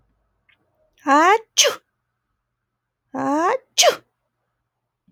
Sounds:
Sneeze